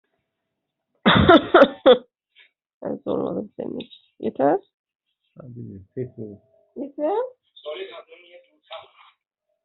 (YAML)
expert_labels:
- quality: ok
  cough_type: dry
  dyspnea: false
  wheezing: false
  stridor: false
  choking: false
  congestion: false
  nothing: true
  diagnosis: healthy cough
  severity: pseudocough/healthy cough
age: 30
gender: female
respiratory_condition: false
fever_muscle_pain: false
status: healthy